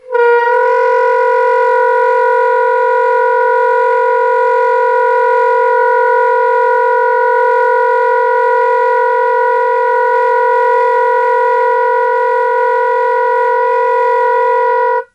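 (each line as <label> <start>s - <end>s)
A saxophone plays a loud, repeating vibrating sound. 0.0s - 15.1s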